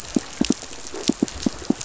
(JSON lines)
{"label": "biophony, pulse", "recorder": "SoundTrap 500"}